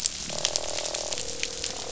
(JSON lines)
{"label": "biophony, croak", "recorder": "SoundTrap 500"}